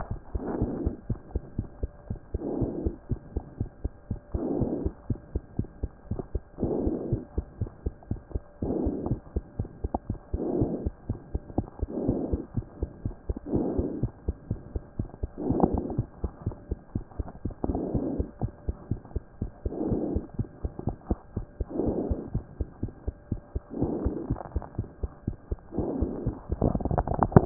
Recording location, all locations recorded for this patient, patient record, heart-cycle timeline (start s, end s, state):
mitral valve (MV)
aortic valve (AV)+pulmonary valve (PV)+tricuspid valve (TV)+mitral valve (MV)
#Age: Child
#Sex: Male
#Height: 94.0 cm
#Weight: 10.2 kg
#Pregnancy status: False
#Murmur: Absent
#Murmur locations: nan
#Most audible location: nan
#Systolic murmur timing: nan
#Systolic murmur shape: nan
#Systolic murmur grading: nan
#Systolic murmur pitch: nan
#Systolic murmur quality: nan
#Diastolic murmur timing: nan
#Diastolic murmur shape: nan
#Diastolic murmur grading: nan
#Diastolic murmur pitch: nan
#Diastolic murmur quality: nan
#Outcome: Abnormal
#Campaign: 2014 screening campaign
0.00	1.00	unannotated
1.00	1.10	diastole
1.10	1.18	S1
1.18	1.34	systole
1.34	1.42	S2
1.42	1.58	diastole
1.58	1.66	S1
1.66	1.82	systole
1.82	1.90	S2
1.90	2.10	diastole
2.10	2.18	S1
2.18	2.32	systole
2.32	2.42	S2
2.42	2.58	diastole
2.58	2.70	S1
2.70	2.82	systole
2.82	2.94	S2
2.94	3.10	diastole
3.10	3.20	S1
3.20	3.34	systole
3.34	3.44	S2
3.44	3.60	diastole
3.60	3.68	S1
3.68	3.82	systole
3.82	3.92	S2
3.92	4.10	diastole
4.10	4.20	S1
4.20	4.34	systole
4.34	4.42	S2
4.42	4.58	diastole
4.58	4.72	S1
4.72	4.82	systole
4.82	4.92	S2
4.92	5.10	diastole
5.10	5.18	S1
5.18	5.32	systole
5.32	5.42	S2
5.42	5.58	diastole
5.58	5.68	S1
5.68	5.82	systole
5.82	5.90	S2
5.90	6.10	diastole
6.10	6.20	S1
6.20	6.34	systole
6.34	6.42	S2
6.42	6.62	diastole
6.62	6.76	S1
6.76	6.82	systole
6.82	6.94	S2
6.94	7.10	diastole
7.10	7.22	S1
7.22	7.36	systole
7.36	7.46	S2
7.46	7.60	diastole
7.60	7.70	S1
7.70	7.84	systole
7.84	7.94	S2
7.94	8.10	diastole
8.10	8.20	S1
8.20	8.34	systole
8.34	8.42	S2
8.42	8.64	diastole
8.64	8.78	S1
8.78	8.84	systole
8.84	8.92	S2
8.92	9.08	diastole
9.08	9.18	S1
9.18	9.34	systole
9.34	9.42	S2
9.42	9.49	diastole
9.49	27.46	unannotated